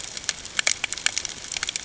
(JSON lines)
{"label": "ambient", "recorder": "HydroMoth"}